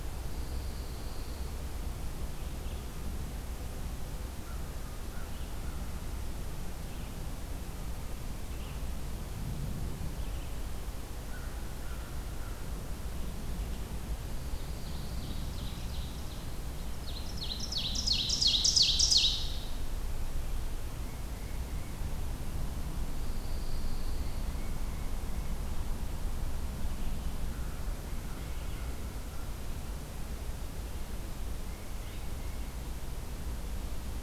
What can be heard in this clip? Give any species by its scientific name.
Vireo olivaceus, Setophaga pinus, Corvus brachyrhynchos, Seiurus aurocapilla, Baeolophus bicolor